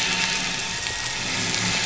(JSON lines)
{"label": "anthrophony, boat engine", "recorder": "SoundTrap 500"}